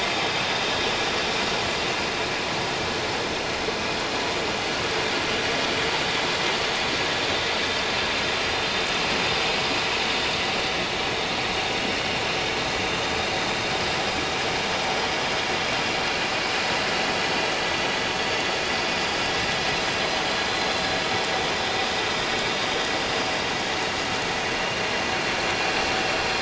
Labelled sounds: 21.6	21.9	vessel noise, 3.6 to 3.8 kHz

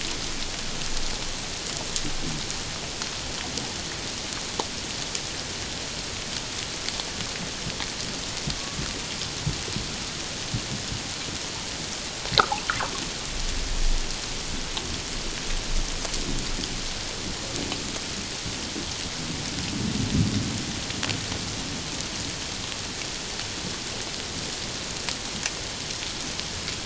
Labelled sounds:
8.5	8.8	killer whale, Bigg's (transient), 1.1 to 1.2 kHz

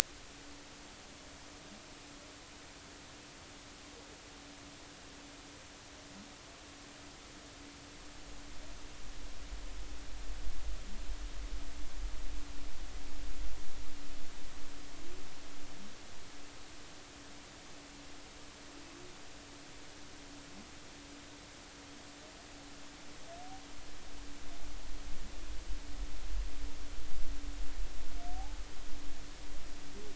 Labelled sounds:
28.3	28.6	humpback whale, 0.80 to 0.90 kHz

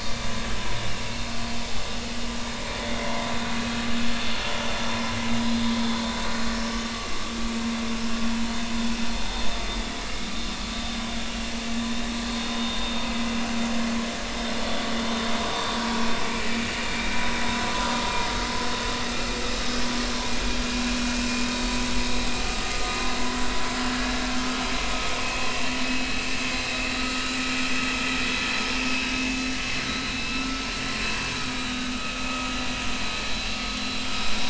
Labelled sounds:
1.1	1.3	vessel noise, 2.5 to 2.8 kHz
12.3	12.6	vessel noise, 3.6 to 3.7 kHz
16.2	17.1	vessel noise, 2.2 to 2.5 kHz
25.2	25.5	vessel noise, 2.5 to 2.7 kHz
27.0	27.3	vessel noise, 1.2 to 1.5 kHz
29.9	30.6	vessel noise, 1.3 to 4.0 kHz
31.4	31.9	vessel noise, 1.2 to 3.8 kHz

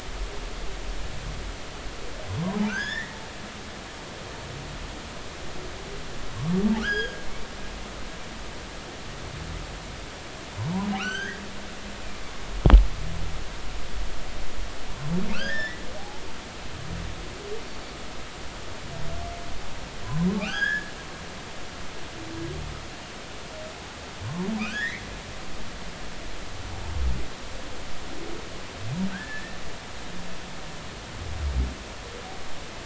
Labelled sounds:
2.7	3.2	humpback whale, 1.3 to 5.5 kHz
6.8	7.2	humpback whale, 1.1 to 6.6 kHz
11.0	11.4	humpback whale, 1.2 to 6.5 kHz
15.3	16.2	humpback whale, 0.80 to 5.4 kHz
17.7	17.9	humpback whale, 4.4 to 4.7 kHz
20.0	20.9	humpback whale, 0.80 to 6.7 kHz
24.7	25.0	humpback whale, 1.4 to 4.1 kHz
29.1	29.6	humpback whale, 1.4 to 1.9 kHz

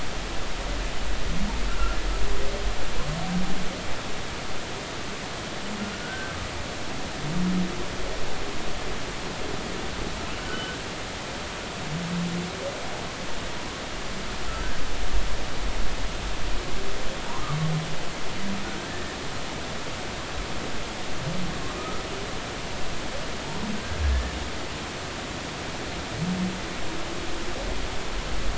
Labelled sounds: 1.7	2.0	humpback whale, 1.3 to 1.5 kHz
6.0	6.4	humpback whale, 1.4 to 1.6 kHz
10.4	10.8	humpback whale, 1.2 to 1.6 kHz
18.9	19.2	humpback whale, 1.7 to 1.9 kHz
23.8	24.4	humpback whale, 1.5 to 1.9 kHz

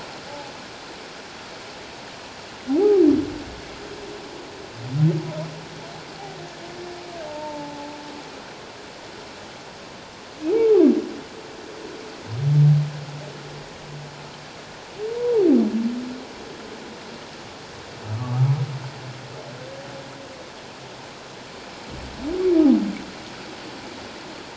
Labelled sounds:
7.3	7.9	humpback whale, 0.78 to 0.97 kHz
15.2	15.5	humpback whale, 0.78 to 1.0 kHz
18.1	18.5	humpback whale, 1.1 to 1.3 kHz

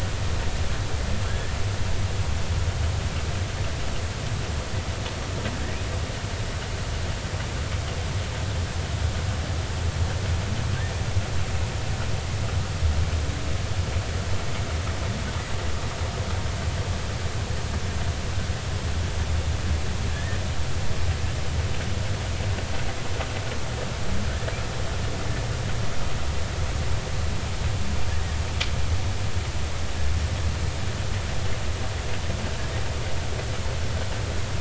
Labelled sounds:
1.3	1.5	humpback whale, 1.5 to 1.9 kHz
20.1	20.4	humpback whale, 1.6 to 1.9 kHz

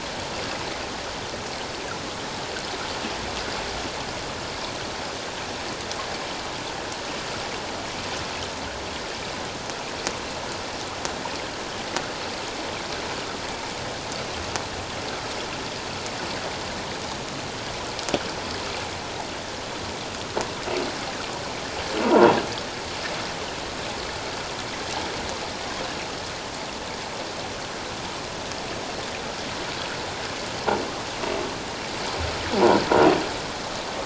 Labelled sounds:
22.0	22.4	croaking sound likely from a nearby submerged object, 0.81 to 1.1 kHz

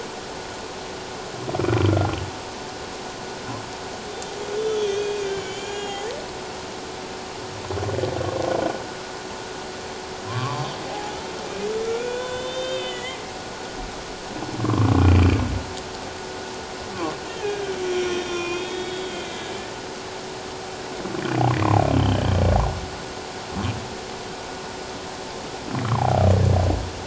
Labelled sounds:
4.6	6.0	humpback whale, 1.6 to 7.0 kHz
10.3	11.1	humpback whale, 0.78 to 2.5 kHz
11.8	13.2	humpback whale, 1.3 to 6.2 kHz
14.6	15.2	humpback whale, 1.0 to 2.5 kHz
17.3	19.5	humpback whale, 1.0 to 5.9 kHz
21.9	22.4	humpback whale, 2.9 to 3.3 kHz
25.9	26.2	humpback whale, 0.78 to 1.2 kHz

